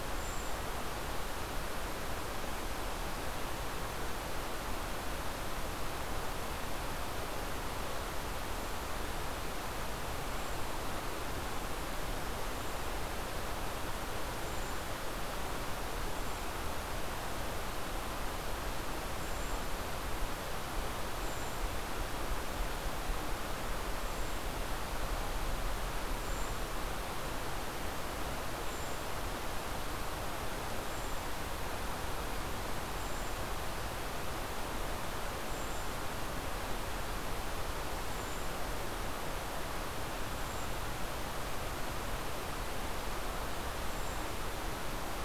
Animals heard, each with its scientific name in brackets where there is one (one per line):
Golden-crowned Kinglet (Regulus satrapa)